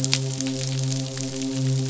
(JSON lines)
{"label": "biophony, midshipman", "recorder": "SoundTrap 500"}